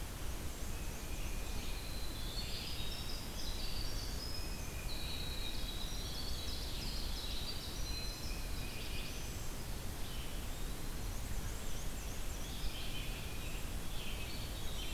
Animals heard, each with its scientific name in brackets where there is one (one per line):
Tufted Titmouse (Baeolophus bicolor)
Black-and-white Warbler (Mniotilta varia)
Eastern Wood-Pewee (Contopus virens)
Winter Wren (Troglodytes hiemalis)
Black-throated Blue Warbler (Setophaga caerulescens)
Red-eyed Vireo (Vireo olivaceus)